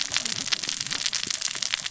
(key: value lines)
label: biophony, cascading saw
recorder: SoundTrap 600 or HydroMoth